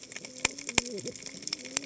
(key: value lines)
label: biophony, cascading saw
recorder: HydroMoth